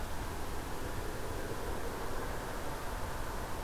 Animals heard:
forest ambience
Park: Marsh-Billings-Rockefeller National Historical Park